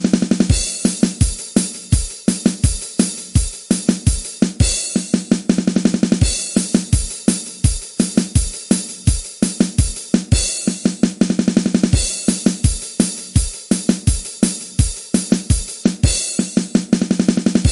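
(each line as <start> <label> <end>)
0.0 Fast drumming. 0.4
0.4 A crash. 0.8
0.8 Rhythmic clapping. 4.6
0.8 Rhythmic drum kicks. 4.6
4.6 A drum crashes. 4.9
5.0 Drum kicks gradually increase in speed. 6.2
6.2 A drum crashes. 6.5
6.5 Rhythmic drum kicks. 10.3
6.5 Rhythmic clapping. 10.3
10.3 A drum crashes. 10.6
10.6 Drums gradually speed up. 11.9
11.9 A drum crashes. 12.3
12.2 Rhythmic clapping. 16.0
12.3 Rhythmic drum kicks. 16.0
16.0 A drum crashes. 16.3
16.3 Drum kicks gradually increase in speed. 17.7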